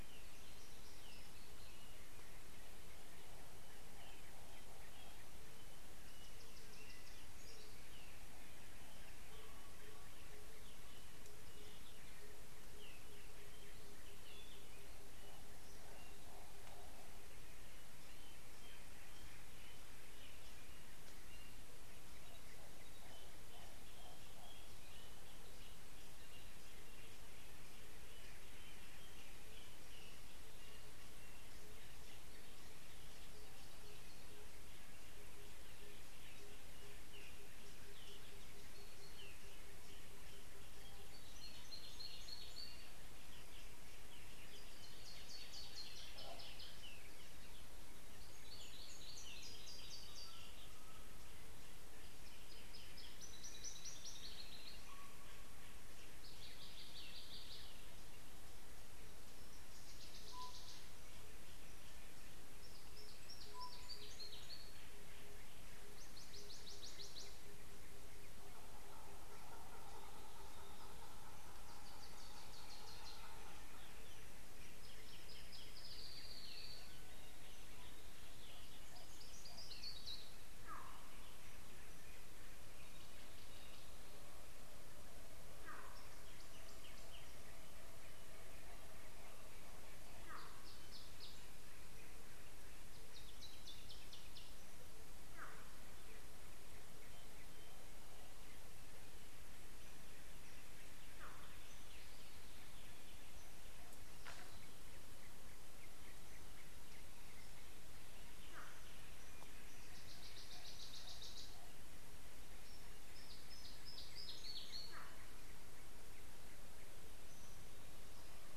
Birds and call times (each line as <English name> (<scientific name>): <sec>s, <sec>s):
Brown Woodland-Warbler (Phylloscopus umbrovirens): 53.8s
Tropical Boubou (Laniarius major): 60.5s
Tambourine Dove (Turtur tympanistria): 66.4s